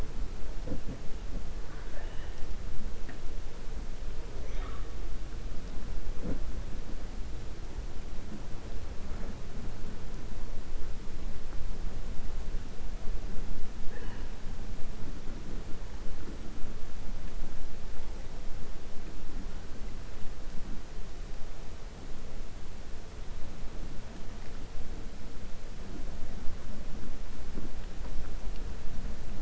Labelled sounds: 1.6	2.4	killer whale, 0.58 to 3.0 kHz

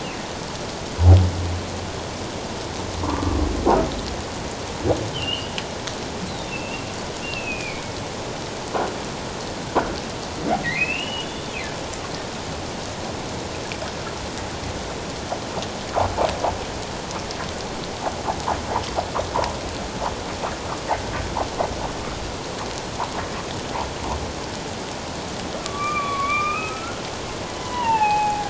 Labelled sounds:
3.0	3.4	humpback whale, 0.91 to 1.2 kHz
5.1	6.9	humpback whale, 2.5 to 4.1 kHz
7.2	8.0	humpback whale, 2.2 to 2.8 kHz
10.6	11.5	humpback whale, 1.8 to 3.6 kHz
25.6	27.0	humpback whale, 1.1 to 3.7 kHz
27.6	28.4	humpback whale, 0.78 to 3.0 kHz

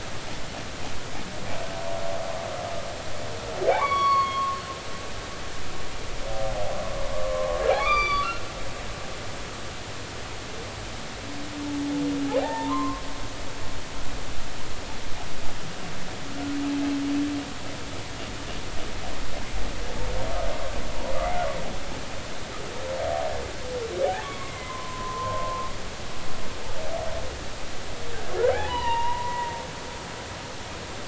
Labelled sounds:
3.7	4.6	humpback whale, 0.80 to 4.5 kHz
7.1	8.5	humpback whale, 0.99 to 6.0 kHz
12.4	13.0	humpback whale, 0.80 to 1.9 kHz
24.2	25.7	humpback whale, 0.96 to 2.3 kHz
28.4	29.5	humpback whale, 0.80 to 3.9 kHz

